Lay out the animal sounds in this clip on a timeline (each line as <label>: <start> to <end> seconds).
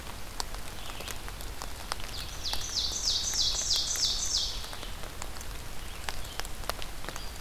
Red-eyed Vireo (Vireo olivaceus): 0.0 to 7.4 seconds
Ovenbird (Seiurus aurocapilla): 1.9 to 4.9 seconds